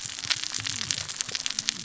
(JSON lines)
{"label": "biophony, cascading saw", "recorder": "SoundTrap 600 or HydroMoth"}